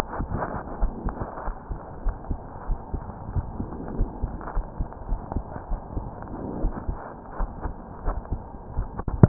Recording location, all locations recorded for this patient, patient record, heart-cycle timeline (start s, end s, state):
aortic valve (AV)
aortic valve (AV)+pulmonary valve (PV)+tricuspid valve (TV)+mitral valve (MV)
#Age: Adolescent
#Sex: Male
#Height: nan
#Weight: nan
#Pregnancy status: False
#Murmur: Absent
#Murmur locations: nan
#Most audible location: nan
#Systolic murmur timing: nan
#Systolic murmur shape: nan
#Systolic murmur grading: nan
#Systolic murmur pitch: nan
#Systolic murmur quality: nan
#Diastolic murmur timing: nan
#Diastolic murmur shape: nan
#Diastolic murmur grading: nan
#Diastolic murmur pitch: nan
#Diastolic murmur quality: nan
#Outcome: Abnormal
#Campaign: 2015 screening campaign
0.00	1.56	unannotated
1.56	1.70	systole
1.70	1.78	S2
1.78	2.04	diastole
2.04	2.18	S1
2.18	2.28	systole
2.28	2.38	S2
2.38	2.67	diastole
2.67	2.78	S1
2.78	2.90	systole
2.90	3.02	S2
3.02	3.33	diastole
3.33	3.50	S1
3.50	3.58	systole
3.58	3.70	S2
3.70	3.95	diastole
3.95	4.12	S1
4.12	4.20	systole
4.20	4.32	S2
4.32	4.52	diastole
4.52	4.66	S1
4.66	4.76	systole
4.76	4.86	S2
4.86	5.08	diastole
5.08	5.22	S1
5.22	5.32	systole
5.32	5.44	S2
5.44	5.68	diastole
5.68	5.80	S1
5.80	5.93	systole
5.93	6.04	S2
6.04	6.59	diastole
6.59	6.73	S1
6.73	6.86	systole
6.86	6.98	S2
6.98	7.37	diastole
7.37	7.50	S1
7.50	7.63	systole
7.63	7.76	S2
7.76	8.03	diastole
8.03	8.18	S1
8.18	8.28	systole
8.28	8.44	S2
8.44	8.60	diastole
8.60	9.28	unannotated